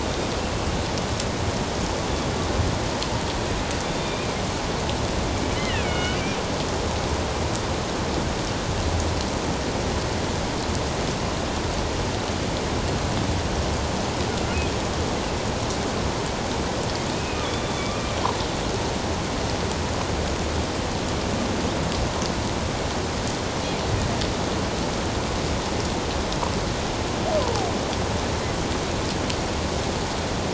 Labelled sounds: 3.8	4.3	killer whale, northern resident, A clan, AB subclan, 2.3 to 3.7 kHz
5.5	6.2	killer whale, northern resident, A clan, AB subclan, 1.4 to 3.2 kHz
14.3	14.6	killer whale, northern resident, A clan, AB subclan, 1.3 to 1.5 kHz
17.1	18.1	killer whale, northern resident, A clan, AB subclan, 2.2 to 3.6 kHz
27.4	27.7	killer whale, northern resident, A clan, AB subclan, 0.78 to 1.1 kHz

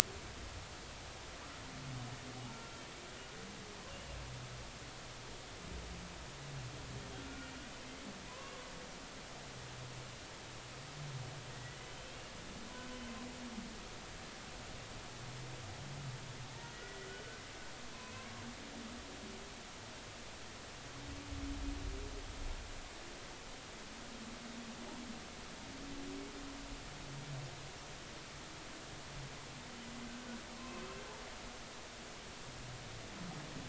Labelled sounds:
2.5	2.7	humpback whale, 1.2 to 1.4 kHz
7.2	7.5	humpback whale, 1.4 to 1.5 kHz
8.3	8.6	humpback whale, 0.96 to 2.8 kHz
11.5	12.1	humpback whale, 1.8 to 3.2 kHz
12.8	13.1	humpback whale, 3.0 to 3.1 kHz
16.7	17.1	humpback whale, 1.9 to 2.0 kHz
17.9	18.4	humpback whale, 0.96 to 2.7 kHz
30.6	30.9	humpback whale, 0.99 to 2.7 kHz

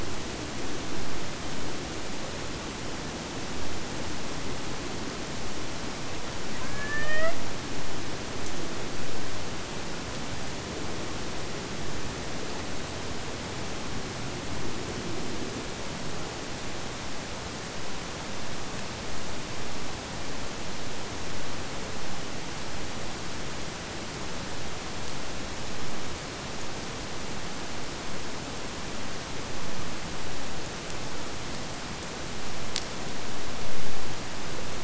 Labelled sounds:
6.6	7.5	killer whale, Bigg's (transient), AT1 transient, 0.55 to 3.6 kHz

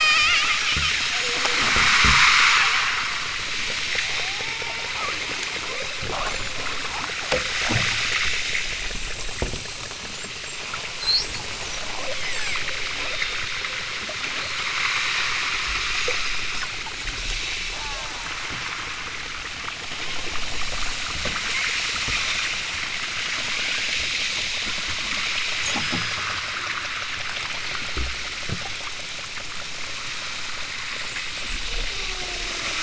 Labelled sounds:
0.0	0.7	killer whale, southern Alaska resident, 0.41 to 8.0 kHz
1.0	1.7	killer whale, southern Alaska resident, 0.18 to 1.2 kHz
2.8	3.4	killer whale, southern Alaska resident, 1.0 to 2.5 kHz
4.1	4.9	killer whale, southern Alaska resident, 0.28 to 3.5 kHz
5.6	6.0	killer whale, southern Alaska resident, 0.32 to 1.9 kHz
12.2	12.6	killer whale, southern Alaska resident, 1.1 to 8.0 kHz
17.7	18.4	killer whale, southern Alaska resident, 0.32 to 2.7 kHz
31.8	32.8	killer whale, southern Alaska resident, 0.18 to 1.8 kHz

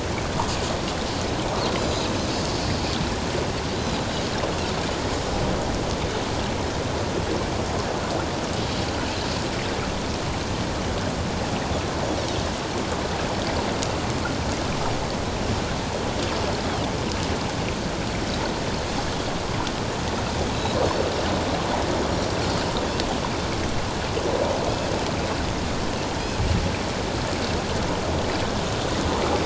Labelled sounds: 1.8	2.1	Pacific white-sided dolphin, 3.7 to 4.2 kHz

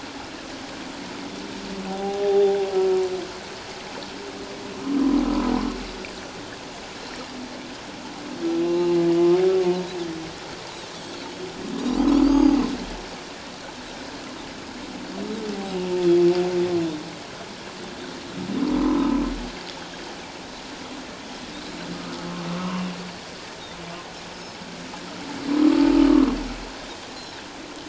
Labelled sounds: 1.9	2.6	humpback whale, 0.78 to 0.84 kHz
2.2	2.5	Pacific white-sided dolphin, 3.5 to 3.7 kHz
8.6	8.9	Pacific white-sided dolphin, 2.7 to 4.1 kHz
11.8	12.6	Pacific white-sided dolphin, 2.8 to 6.6 kHz
12.3	12.6	humpback whale, 0.81 to 0.97 kHz
18.8	19.1	humpback whale, 0.91 to 1.1 kHz
22.5	22.8	humpback whale, 0.91 to 1.3 kHz
24.3	24.6	Pacific white-sided dolphin, 5.1 to 5.4 kHz

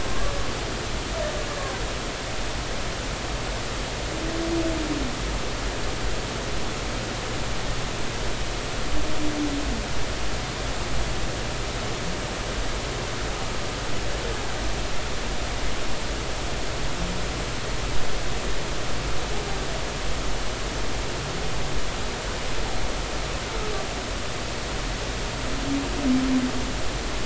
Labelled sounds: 0.1	0.4	humpback whale, 1.0 to 1.2 kHz

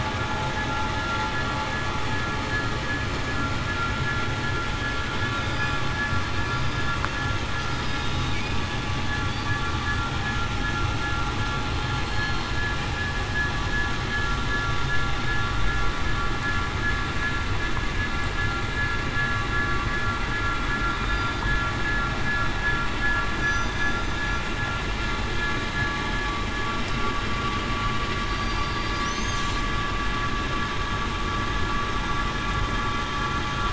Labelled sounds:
7.9	8.2	killer whale, southern resident, 3.7 to 3.8 kHz
11.9	12.5	killer whale, southern resident, 4.2 to 4.3 kHz
28.3	29.0	killer whale, southern resident, 4.6 to 4.8 kHz

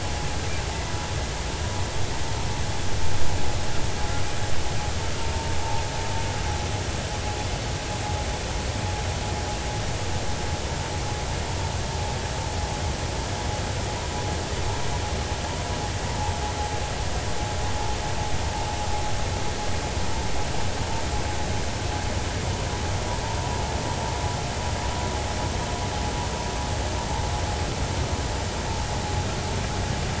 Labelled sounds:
5.6	5.8	vessel noise, 0.80 to 0.93 kHz

